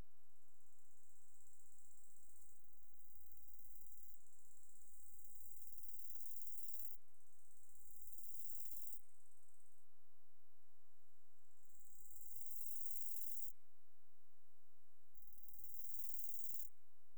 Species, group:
Chorthippus biguttulus, Orthoptera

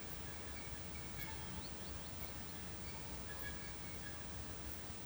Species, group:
Phaneroptera nana, Orthoptera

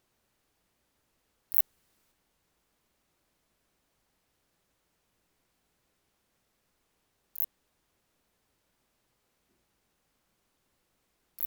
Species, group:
Phaneroptera nana, Orthoptera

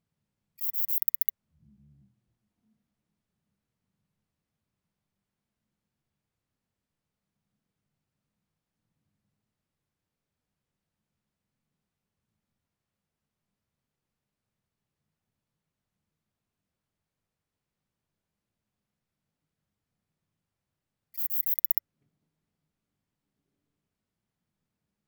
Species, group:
Platycleis escalerai, Orthoptera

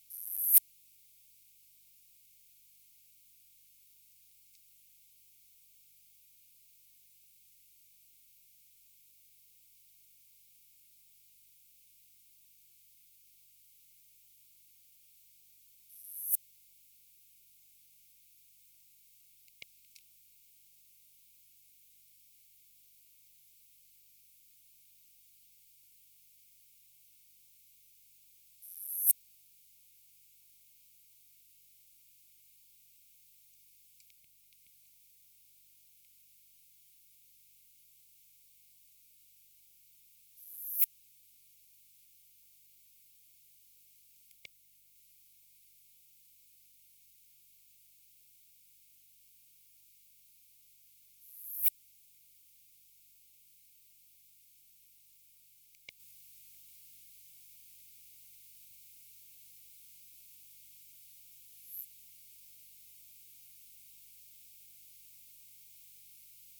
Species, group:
Poecilimon affinis, Orthoptera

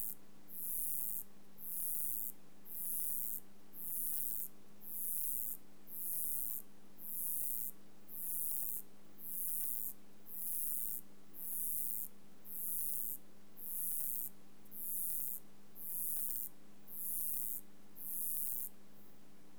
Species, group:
Uromenus rugosicollis, Orthoptera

